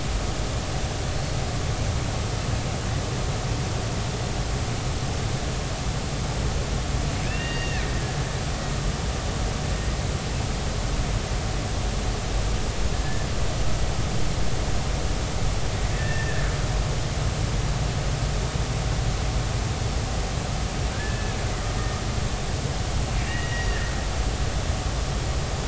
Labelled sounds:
7.3	7.9	killer whale, Bigg's (transient), 1.6 to 2.9 kHz
13.0	13.3	killer whale, Bigg's (transient), 1.7 to 1.8 kHz
15.9	16.4	killer whale, Bigg's (transient), 1.5 to 2.0 kHz
20.9	21.3	killer whale, Bigg's (transient), 1.5 to 1.8 kHz
23.3	23.9	killer whale, Bigg's (transient), 1.6 to 2.0 kHz

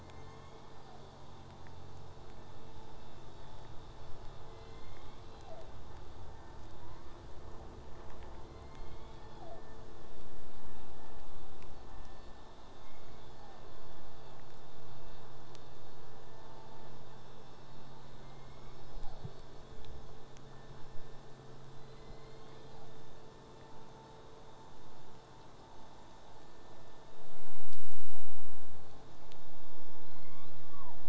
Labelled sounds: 0.0	1.4	killer whale, southern resident, J pod, call S01, 0.82 to 6.9 kHz
4.5	5.6	killer whale, southern resident, J pod, call S01, 0.52 to 7.7 kHz
6.8	7.2	killer whale, southern resident, J pod, 0.66 to 5.4 kHz
8.4	9.6	killer whale, southern resident, J pod, call S01, 0.42 to 5.5 kHz
18.2	19.4	killer whale, southern resident, J pod, call S01, 0.13 to 7.2 kHz
21.7	23.0	killer whale, southern resident, J pod, call S01, 0.33 to 4.7 kHz
27.4	28.4	killer whale, southern resident, J pod, call S01, 0.42 to 4.6 kHz
30.0	31.0	killer whale, southern resident, J pod, call S01, 0.38 to 5.3 kHz

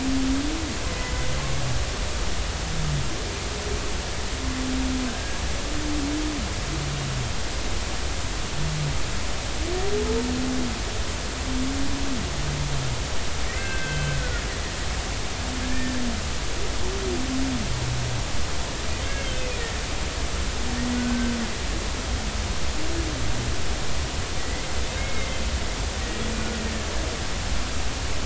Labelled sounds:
5.1	5.4	humpback whale, 1.6 to 1.7 kHz
13.5	14.2	humpback whale, 1.5 to 3.2 kHz
15.6	16.0	humpback whale, 1.6 to 1.9 kHz
19.0	19.7	humpback whale, 2.1 to 2.6 kHz
21.0	21.3	humpback whale, 1.4 to 1.6 kHz
24.4	24.7	humpback whale, 1.9 to 2.2 kHz
25.0	25.4	humpback whale, 2.0 to 2.3 kHz

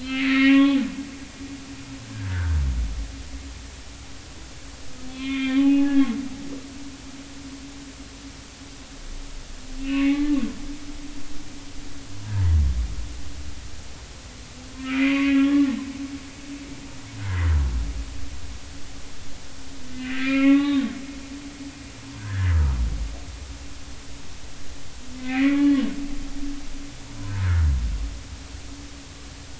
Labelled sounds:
0.0	0.8	humpback whale, 0.80 to 4.4 kHz
2.3	2.6	humpback whale, 1.4 to 1.8 kHz
5.1	6.1	humpback whale, 0.80 to 3.6 kHz
9.8	10.4	humpback whale, 1.0 to 3.0 kHz
12.2	12.5	humpback whale, 0.86 to 1.0 kHz
14.8	15.7	humpback whale, 1.1 to 2.8 kHz
19.9	20.8	humpback whale, 0.80 to 3.8 kHz
22.2	22.8	humpback whale, 1.2 to 1.9 kHz
25.1	25.7	humpback whale, 1.1 to 2.6 kHz

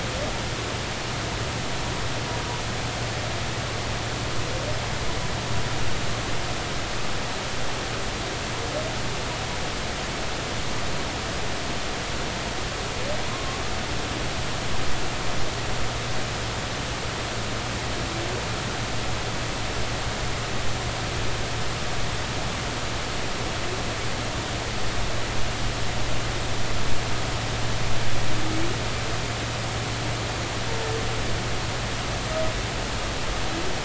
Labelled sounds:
14.3	14.6	humpback whale, 1.0 to 1.1 kHz

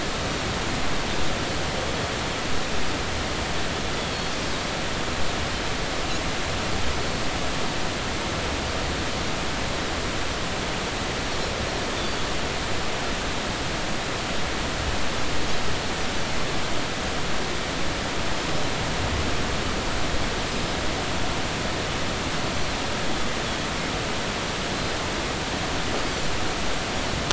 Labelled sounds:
4.0	4.2	Pacific white-sided dolphin, 3.2 to 3.4 kHz
20.5	20.7	Pacific white-sided dolphin, 5.0 to 5.2 kHz

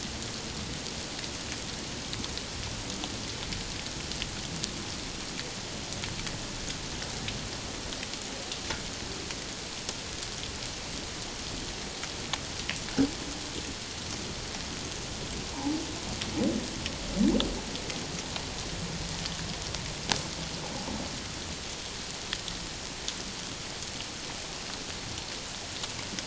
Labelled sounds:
15.5	15.8	humpback whale, 0.78 to 1.0 kHz

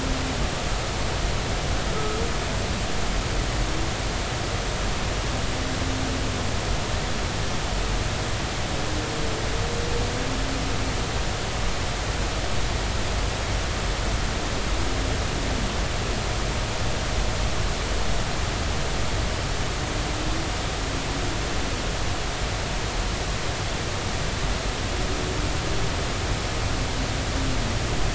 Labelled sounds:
2.0	2.2	humpback whale, 1.2 to 1.3 kHz

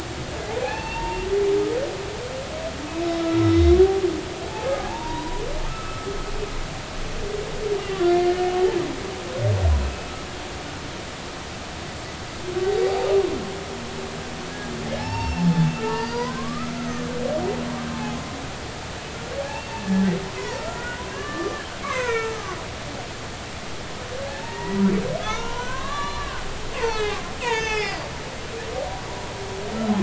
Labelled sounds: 3.2	3.8	humpback whale, 1.3 to 3.9 kHz
4.8	6.1	humpback whale, 0.80 to 1.4 kHz
7.8	8.5	humpback whale, 1.7 to 2.1 kHz
15.0	17.2	humpback whale, 0.80 to 5.6 kHz
17.9	18.2	humpback whale, 0.80 to 0.93 kHz
19.8	22.6	humpback whale, 0.93 to 3.0 kHz
24.2	24.8	humpback whale, 0.80 to 2.0 kHz
25.2	26.5	humpback whale, 0.90 to 4.2 kHz
26.8	28.1	humpback whale, 1.2 to 6.9 kHz

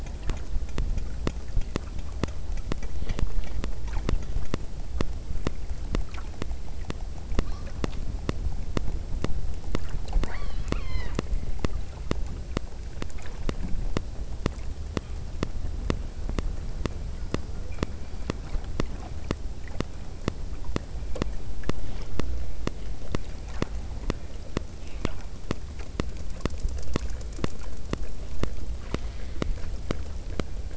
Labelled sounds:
10.1	11.3	killer whale, southern Alaska resident, 0.66 to 6.5 kHz
17.2	18.4	killer whale, southern Alaska resident, 2.1 to 5.2 kHz

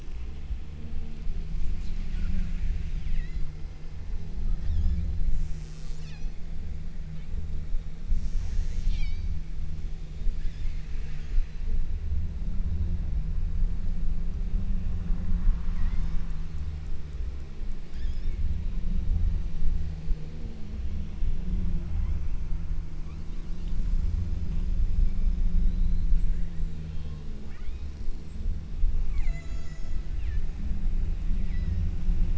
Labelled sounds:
3.2	3.6	killer whale, southern Alaska resident, 1.7 to 7.3 kHz
4.5	6.7	killer whale, southern Alaska resident, 0.85 to 8.0 kHz
8.1	9.5	killer whale, southern Alaska resident, 0.91 to 8.0 kHz
10.4	12.1	killer whale, southern Alaska resident, 0.68 to 6.2 kHz
15.8	16.8	killer whale, southern Alaska resident, 1.7 to 6.9 kHz
17.9	18.6	killer whale, southern Alaska resident, 1.5 to 8.0 kHz
21.9	22.5	killer whale, southern Alaska resident, 0.62 to 3.8 kHz
23.0	23.6	killer whale, southern Alaska resident, 0.83 to 5.8 kHz
27.5	28.2	killer whale, southern Alaska resident, 0.53 to 4.4 kHz
29.1	30.7	killer whale, southern Alaska resident, 0.53 to 8.0 kHz
31.5	32.2	killer whale, southern Alaska resident, 1.6 to 5.8 kHz

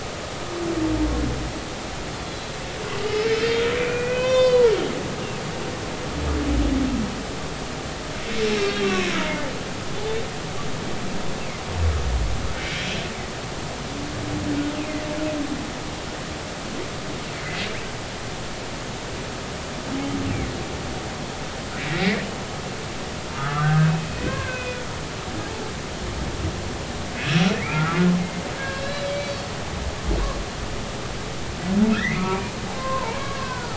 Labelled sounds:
2.1	2.5	humpback whale, 3.3 to 4.1 kHz
3.0	4.7	humpback whale, 0.96 to 3.7 kHz
8.6	9.1	humpback whale, 1.1 to 2.8 kHz
21.9	22.2	humpback whale, 1.7 to 2.4 kHz
23.3	24.9	humpback whale, 1.0 to 3.5 kHz
27.2	28.1	humpback whale, 1.2 to 5.8 kHz
28.6	29.5	humpback whale, 1.5 to 5.2 kHz
31.9	32.4	humpback whale, 1.1 to 2.6 kHz
32.7	33.7	humpback whale, 0.83 to 1.6 kHz

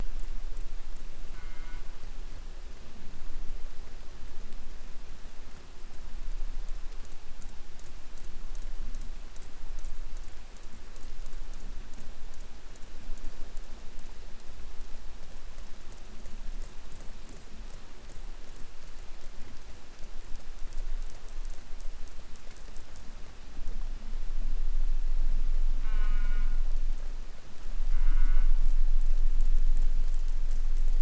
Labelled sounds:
1.3	1.9	killer whale, southern resident, J pod, call S04, 0.42 to 3.6 kHz
25.8	26.7	killer whale, southern resident, J pod, call S04, 0.23 to 4.9 kHz
27.8	28.6	killer whale, southern resident, J pod, call S04, 0.27 to 3.5 kHz

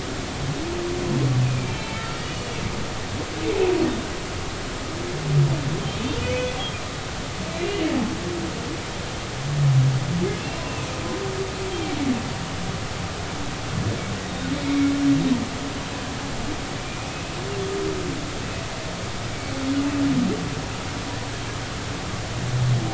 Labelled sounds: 1.4	2.5	humpback whale, 1.2 to 3.2 kHz
6.2	6.6	humpback whale, 2.4 to 2.6 kHz
7.6	7.9	humpback whale, 2.7 to 3.0 kHz
14.2	14.9	humpback whale, 2.1 to 3.8 kHz
16.8	17.2	humpback whale, 2.3 to 2.6 kHz

